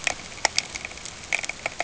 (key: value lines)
label: ambient
recorder: HydroMoth